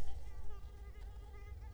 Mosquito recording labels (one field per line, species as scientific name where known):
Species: Culex quinquefasciatus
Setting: cup